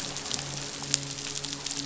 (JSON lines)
{"label": "biophony, midshipman", "recorder": "SoundTrap 500"}